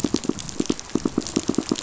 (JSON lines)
{"label": "biophony, pulse", "recorder": "SoundTrap 500"}